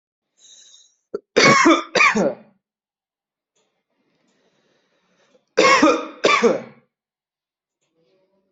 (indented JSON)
{
  "expert_labels": [
    {
      "quality": "good",
      "cough_type": "dry",
      "dyspnea": false,
      "wheezing": false,
      "stridor": false,
      "choking": false,
      "congestion": false,
      "nothing": true,
      "diagnosis": "upper respiratory tract infection",
      "severity": "mild"
    }
  ]
}